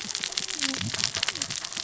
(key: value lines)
label: biophony, cascading saw
recorder: SoundTrap 600 or HydroMoth